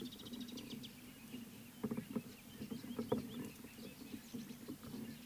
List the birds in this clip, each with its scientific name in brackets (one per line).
Gabar Goshawk (Micronisus gabar)